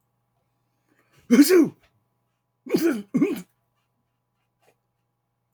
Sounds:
Sneeze